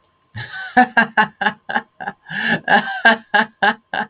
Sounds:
Laughter